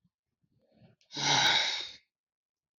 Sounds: Sigh